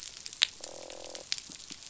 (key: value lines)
label: biophony, croak
recorder: SoundTrap 500